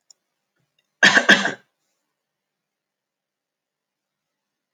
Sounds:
Cough